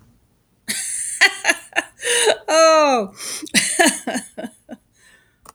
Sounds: Laughter